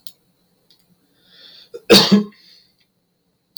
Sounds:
Cough